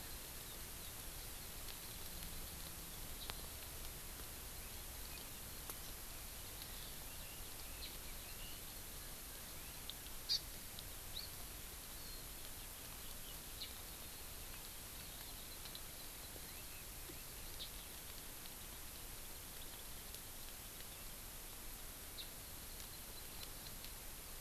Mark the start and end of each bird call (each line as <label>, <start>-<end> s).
Eurasian Skylark (Alauda arvensis), 0.0-8.6 s
Hawaii Amakihi (Chlorodrepanis virens), 10.3-10.4 s
Hawaii Amakihi (Chlorodrepanis virens), 15.0-16.6 s
Hawaii Amakihi (Chlorodrepanis virens), 22.4-23.8 s